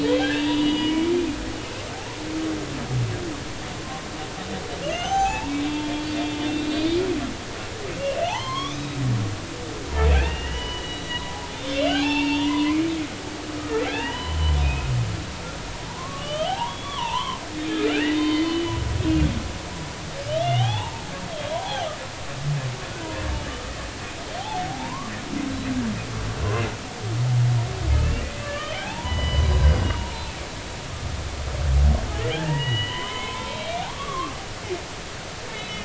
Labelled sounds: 0.0	1.1	humpback whale, 1.5 to 4.9 kHz
4.8	5.9	humpback whale, 0.80 to 6.3 kHz
6.4	7.0	humpback whale, 3.3 to 4.8 kHz
8.2	9.0	humpback whale, 0.80 to 6.4 kHz
10.1	12.9	humpback whale, 0.80 to 4.9 kHz
13.9	14.6	humpback whale, 0.80 to 3.1 kHz
15.9	18.8	humpback whale, 0.80 to 3.7 kHz
20.3	21.9	humpback whale, 0.80 to 3.9 kHz
24.4	25.1	humpback whale, 0.80 to 1.2 kHz
28.4	29.8	humpback whale, 0.80 to 4.0 kHz
32.3	35.8	humpback whale, 0.86 to 4.0 kHz

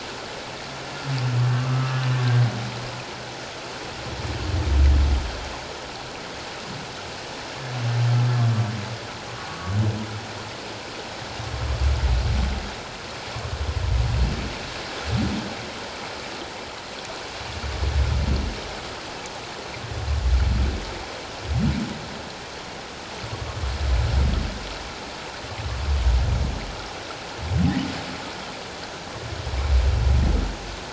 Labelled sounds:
1.6	1.9	humpback whale, 1.1 to 1.3 kHz
9.5	9.8	humpback whale, 1.1 to 1.2 kHz

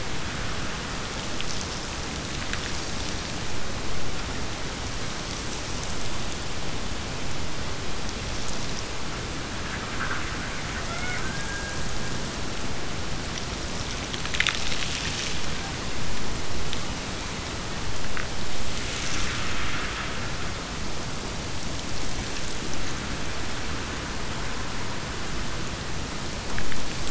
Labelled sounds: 10.8	12.2	killer whale, Bigg's (transient), Gulf of Alaska transient, 0.48 to 3.7 kHz

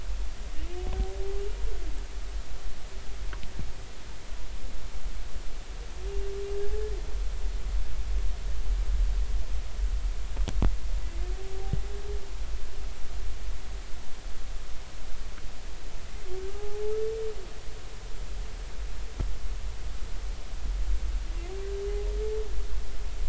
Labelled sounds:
16.5	16.8	humpback whale, 0.80 to 0.86 kHz

